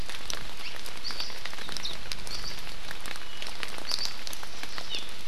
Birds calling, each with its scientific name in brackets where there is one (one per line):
Hawaii Amakihi (Chlorodrepanis virens)